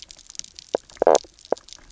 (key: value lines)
label: biophony, knock croak
recorder: SoundTrap 300